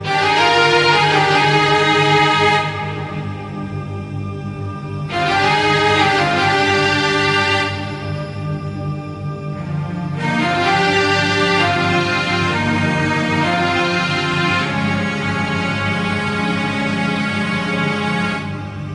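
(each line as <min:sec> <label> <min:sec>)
0:00.0 A piano is playing. 0:02.9
0:02.9 Low humming ambiance. 0:05.1
0:05.1 A piano is playing. 0:07.9
0:07.9 Low humming ambiance. 0:10.1
0:10.1 A piano is playing. 0:18.7
0:18.7 Low humming ambiance. 0:18.9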